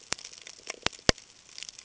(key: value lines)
label: ambient
recorder: HydroMoth